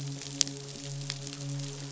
{"label": "biophony, midshipman", "recorder": "SoundTrap 500"}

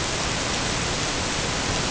{"label": "ambient", "recorder": "HydroMoth"}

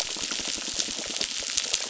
{"label": "biophony", "recorder": "SoundTrap 600"}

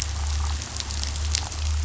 {"label": "anthrophony, boat engine", "recorder": "SoundTrap 500"}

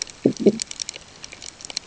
{"label": "ambient", "recorder": "HydroMoth"}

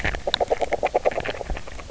{"label": "biophony, grazing", "recorder": "SoundTrap 300"}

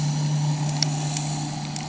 {"label": "anthrophony, boat engine", "recorder": "HydroMoth"}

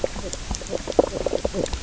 {"label": "biophony, knock croak", "recorder": "SoundTrap 300"}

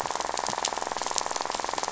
{"label": "biophony, rattle", "recorder": "SoundTrap 500"}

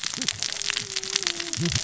{"label": "biophony, cascading saw", "recorder": "SoundTrap 600 or HydroMoth"}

